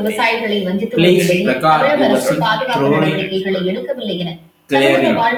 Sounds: Throat clearing